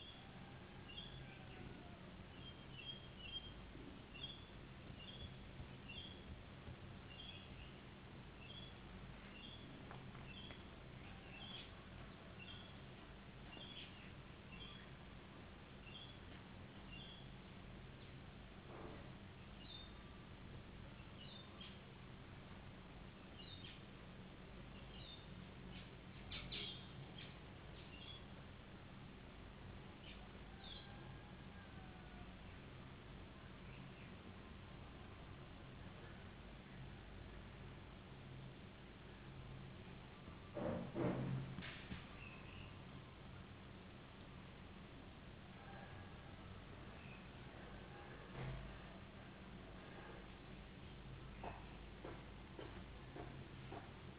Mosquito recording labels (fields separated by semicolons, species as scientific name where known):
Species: no mosquito; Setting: insect culture